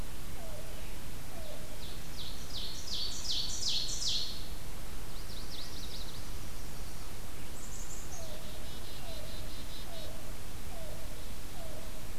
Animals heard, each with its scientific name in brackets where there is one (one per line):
Black-capped Chickadee (Poecile atricapillus)
Chestnut-sided Warbler (Setophaga pensylvanica)
Yellow-billed Cuckoo (Coccyzus americanus)
Ovenbird (Seiurus aurocapilla)